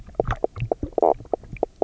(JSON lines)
{"label": "biophony, knock croak", "recorder": "SoundTrap 300"}